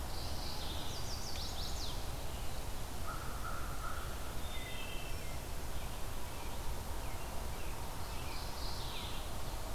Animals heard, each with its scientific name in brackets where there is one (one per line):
Chestnut-sided Warbler (Setophaga pensylvanica)
Mourning Warbler (Geothlypis philadelphia)
American Crow (Corvus brachyrhynchos)
Wood Thrush (Hylocichla mustelina)